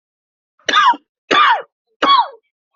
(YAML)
expert_labels:
- quality: good
  cough_type: dry
  dyspnea: false
  wheezing: false
  stridor: false
  choking: false
  congestion: false
  nothing: true
  diagnosis: obstructive lung disease
  severity: unknown